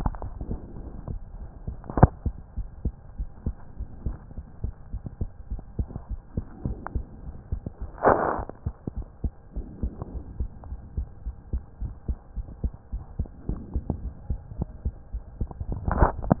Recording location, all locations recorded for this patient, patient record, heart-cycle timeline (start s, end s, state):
pulmonary valve (PV)
pulmonary valve (PV)+tricuspid valve (TV)+mitral valve (MV)
#Age: Child
#Sex: Female
#Height: 112.0 cm
#Weight: 21.2 kg
#Pregnancy status: False
#Murmur: Absent
#Murmur locations: nan
#Most audible location: nan
#Systolic murmur timing: nan
#Systolic murmur shape: nan
#Systolic murmur grading: nan
#Systolic murmur pitch: nan
#Systolic murmur quality: nan
#Diastolic murmur timing: nan
#Diastolic murmur shape: nan
#Diastolic murmur grading: nan
#Diastolic murmur pitch: nan
#Diastolic murmur quality: nan
#Outcome: Normal
#Campaign: 2015 screening campaign
0.00	2.36	unannotated
2.36	2.56	diastole
2.56	2.68	S1
2.68	2.84	systole
2.84	2.94	S2
2.94	3.18	diastole
3.18	3.30	S1
3.30	3.46	systole
3.46	3.56	S2
3.56	3.78	diastole
3.78	3.88	S1
3.88	4.04	systole
4.04	4.18	S2
4.18	4.36	diastole
4.36	4.44	S1
4.44	4.60	systole
4.60	4.72	S2
4.72	4.92	diastole
4.92	5.00	S1
5.00	5.20	systole
5.20	5.30	S2
5.30	5.50	diastole
5.50	5.62	S1
5.62	5.78	systole
5.78	5.90	S2
5.90	6.10	diastole
6.10	6.22	S1
6.22	6.35	systole
6.35	6.46	S2
6.46	6.64	diastole
6.64	6.78	S1
6.78	6.94	systole
6.94	7.06	S2
7.06	7.24	diastole
7.24	7.36	S1
7.36	7.48	systole
7.48	7.60	S2
7.60	7.80	diastole
7.80	7.90	S1
7.90	8.06	systole
8.06	8.20	S2
8.20	8.36	diastole
8.36	8.46	S1
8.46	8.62	systole
8.62	8.74	S2
8.74	8.94	diastole
8.94	9.06	S1
9.06	9.20	systole
9.20	9.34	S2
9.34	9.54	diastole
9.54	9.66	S1
9.66	9.80	systole
9.80	9.92	S2
9.92	10.12	diastole
10.12	10.24	S1
10.24	10.38	systole
10.38	10.50	S2
10.50	10.68	diastole
10.68	10.80	S1
10.80	10.96	systole
10.96	11.08	S2
11.08	11.26	diastole
11.26	11.36	S1
11.36	11.52	systole
11.52	11.64	S2
11.64	11.82	diastole
11.82	11.96	S1
11.96	12.08	systole
12.08	12.18	S2
12.18	12.36	diastole
12.36	12.46	S1
12.46	12.60	systole
12.60	12.74	S2
12.74	12.94	diastole
12.94	13.04	S1
13.04	13.18	systole
13.18	13.30	S2
13.30	13.48	diastole
13.48	13.60	S1
13.60	13.74	systole
13.74	13.84	S2
13.84	14.02	diastole
14.02	14.14	S1
14.14	14.26	systole
14.26	14.40	S2
14.40	14.56	diastole
14.56	14.70	S1
14.70	14.84	systole
14.84	14.96	S2
14.96	15.13	diastole
15.13	15.24	S1
15.24	15.38	systole
15.38	15.48	S2
15.48	15.63	diastole
15.63	16.40	unannotated